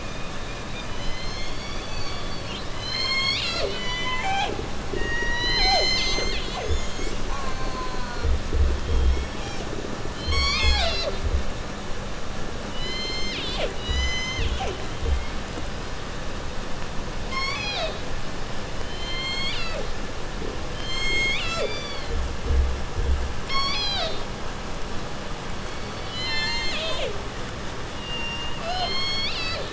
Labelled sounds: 0.0	7.2	killer whale, southern resident, J pod, call S01, 0.24 to 8.0 kHz
4.4	15.7	undetermined biological sound, 0.09 to 0.67 kHz
7.3	8.3	killer whale, southern resident, J pod, call S04, 0.51 to 7.0 kHz
8.7	9.7	killer whale, southern resident, J pod, call S01, 0.57 to 8.0 kHz
10.1	11.3	killer whale, southern resident, J pod, call S01, 0.18 to 8.0 kHz
12.7	14.8	killer whale, southern resident, J pod, call S01, 0.25 to 8.0 kHz
17.1	18.1	killer whale, southern resident, J pod, call S01, 0.30 to 8.0 kHz
18.7	19.9	killer whale, southern resident, J pod, call S01, 0.10 to 8.0 kHz
20.6	21.8	killer whale, southern resident, J pod, call S01, 0.27 to 8.0 kHz
21.5	22.2	killer whale, southern resident, J pod, call S06, 0.51 to 6.3 kHz
23.3	24.3	killer whale, southern resident, 0.14 to 8.0 kHz
25.5	27.3	killer whale, southern resident, J pod, call S01, 0.28 to 8.0 kHz
27.9	29.7	killer whale, southern resident, J pod, call S01, 0.18 to 8.0 kHz

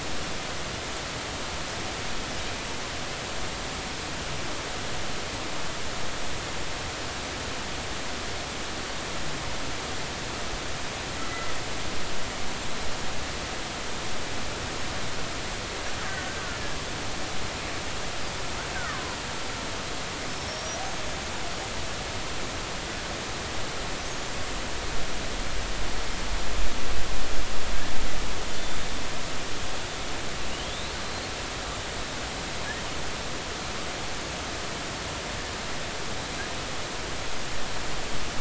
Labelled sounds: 11.3	11.5	killer whale, Bigg's (transient), 1.9 to 2.0 kHz
16.2	16.6	killer whale, Bigg's (transient), 1.3 to 1.6 kHz
18.7	19.0	killer whale, Bigg's (transient), 1.0 to 1.7 kHz
20.3	20.7	killer whale, Bigg's (transient), 5.2 to 5.6 kHz
28.6	28.9	killer whale, Bigg's (transient), 3.5 to 3.6 kHz
30.5	30.7	killer whale, Bigg's (transient), 2.7 to 3.3 kHz

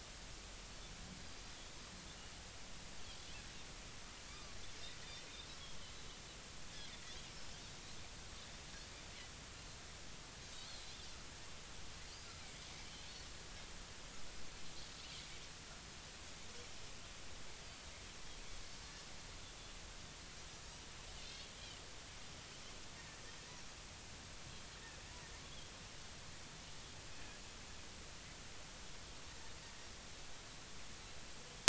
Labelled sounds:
4.3	4.6	Pacific white-sided dolphin, 1.1 to 1.3 kHz
10.7	11.0	Pacific white-sided dolphin, 3.9 to 4.4 kHz
21.3	21.5	Pacific white-sided dolphin, 3.1 to 3.4 kHz

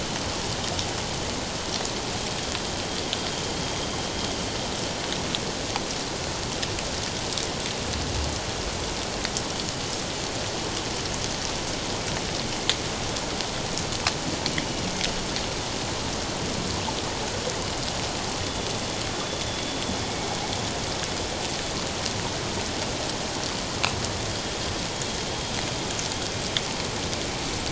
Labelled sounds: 18.4	18.7	killer whale, northern resident, 3.3 to 3.5 kHz

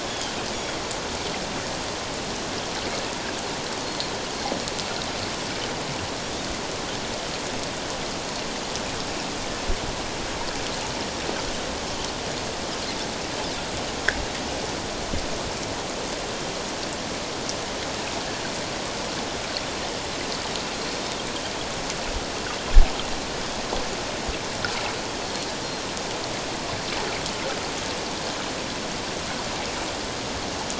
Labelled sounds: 0.0	0.3	Pacific white-sided dolphin, 3.1 to 3.5 kHz
3.8	4.1	Pacific white-sided dolphin, 4.2 to 4.4 kHz
6.2	6.5	Pacific white-sided dolphin, 3.3 to 3.8 kHz

